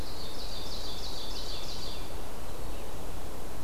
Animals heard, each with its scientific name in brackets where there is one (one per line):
Ovenbird (Seiurus aurocapilla)
Veery (Catharus fuscescens)